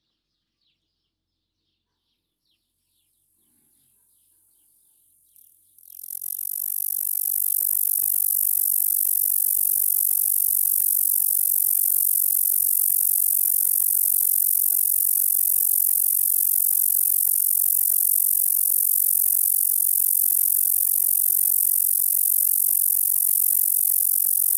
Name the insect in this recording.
Bradyporus dasypus, an orthopteran